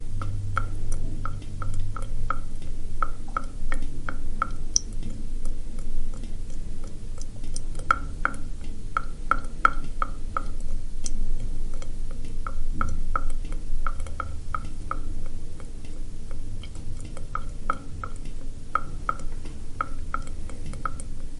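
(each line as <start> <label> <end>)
0.0 Tap water droplets dripping into a drain hole. 4.6
4.7 Tap water dripping on a surface. 7.8
7.8 Drops of tap water dripping into a drain. 10.6
10.6 Tap water dripping onto a surface. 12.3
12.4 Drops of tap water dripping into a drain. 15.1
15.2 Tap water dripping onto a surface. 17.3
17.3 Drops of tap water dripping into a drain. 21.0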